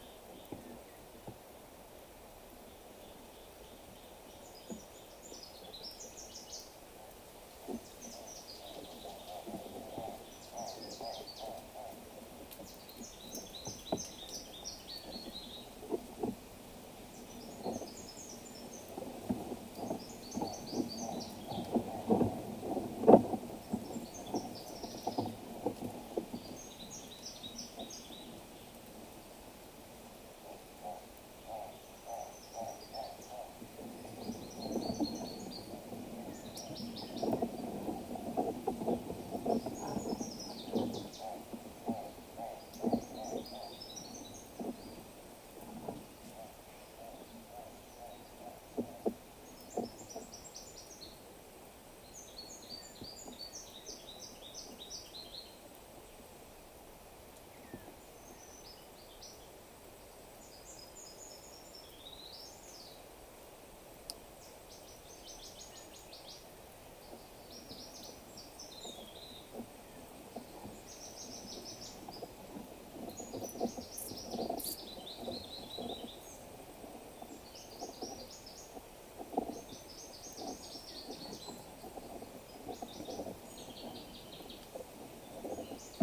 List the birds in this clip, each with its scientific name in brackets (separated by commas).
Hartlaub's Turaco (Tauraco hartlaubi), Brown Woodland-Warbler (Phylloscopus umbrovirens)